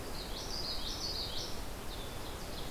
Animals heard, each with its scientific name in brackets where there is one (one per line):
Common Yellowthroat (Geothlypis trichas)
Ovenbird (Seiurus aurocapilla)